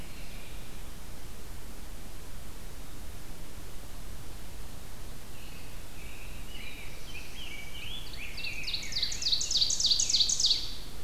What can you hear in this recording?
American Robin, Black-throated Blue Warbler, Rose-breasted Grosbeak, Ovenbird, Scarlet Tanager